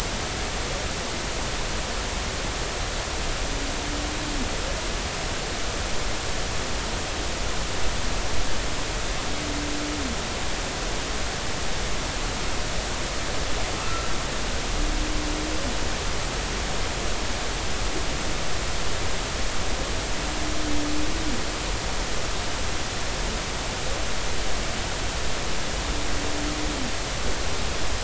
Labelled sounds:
13.8	14.1	humpback whale, 1.2 to 1.4 kHz

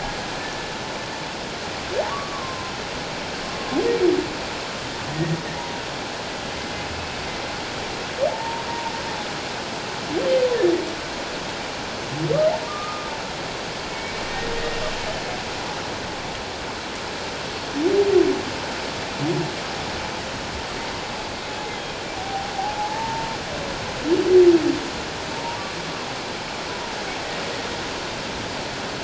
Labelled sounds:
1.2	1.5	humpback whale, 2.5 to 2.6 kHz
2.1	2.7	humpback whale, 0.97 to 1.3 kHz
6.9	7.2	humpback whale, 2.5 to 2.6 kHz
8.3	8.9	humpback whale, 0.81 to 1.0 kHz
12.6	13.1	humpback whale, 1.1 to 1.3 kHz
13.9	14.2	humpback whale, 2.2 to 2.3 kHz
22.2	22.5	humpback whale, 0.78 to 0.84 kHz
22.8	23.3	humpback whale, 0.78 to 0.97 kHz
25.3	25.6	humpback whale, 0.88 to 1.0 kHz

